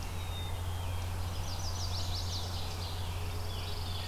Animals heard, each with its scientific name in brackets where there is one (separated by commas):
Scarlet Tanager (Piranga olivacea), Pine Warbler (Setophaga pinus), Ovenbird (Seiurus aurocapilla), Black-capped Chickadee (Poecile atricapillus), Chestnut-sided Warbler (Setophaga pensylvanica)